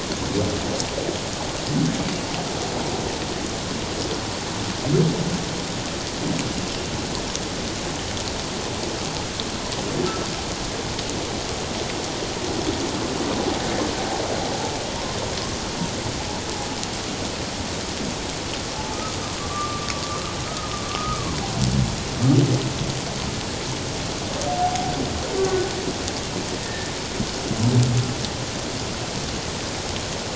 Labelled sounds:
19.4	19.9	humpback whale, 1.1 to 1.2 kHz
20.9	21.2	humpback whale, 1.1 to 1.3 kHz
24.5	24.9	humpback whale, 0.78 to 0.84 kHz
25.4	25.7	humpback whale, 1.4 to 1.6 kHz
26.6	26.9	humpback whale, 1.7 to 1.9 kHz

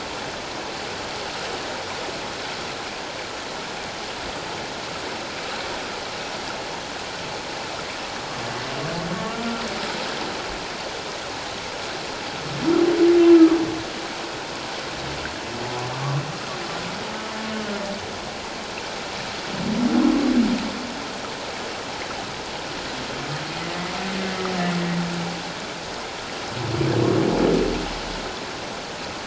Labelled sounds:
15.9	16.2	humpback whale, 1.0 to 1.2 kHz
23.7	24.0	humpback whale, 1.9 to 2.1 kHz

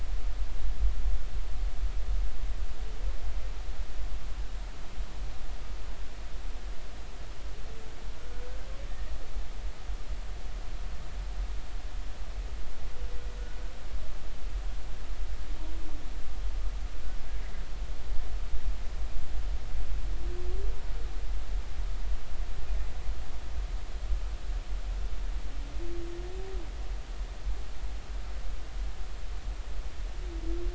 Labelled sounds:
8.9	9.1	humpback whale, 1.8 to 1.9 kHz

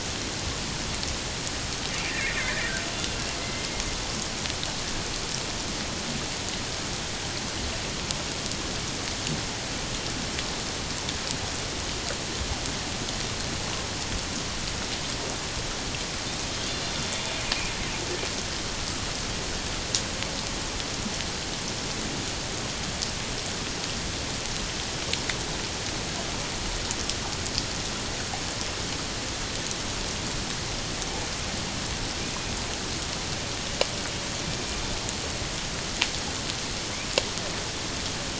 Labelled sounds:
2.5	2.7	killer whale, Bigg's (transient), 1.5 to 2.0 kHz
34.4	34.8	killer whale, 2.3 to 2.4 kHz

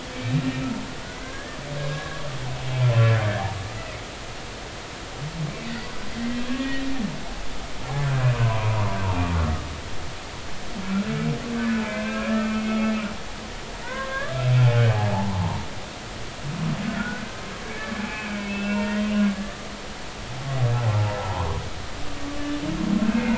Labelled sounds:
0.1	0.4	humpback whale, 2.2 to 2.5 kHz
1.2	1.6	humpback whale, 1.5 to 1.9 kHz
1.9	2.2	humpback whale, 1.6 to 1.7 kHz
3.7	4.0	humpback whale, 1.9 to 2.0 kHz
5.6	6.9	humpback whale, 1.8 to 4.6 kHz
8.3	8.8	humpback whale, 0.93 to 1.2 kHz
11.9	12.5	humpback whale, 1.5 to 2.7 kHz
13.8	15.7	humpback whale, 0.80 to 1.8 kHz
16.9	19.7	humpback whale, 1.1 to 2.8 kHz

